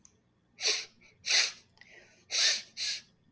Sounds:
Sniff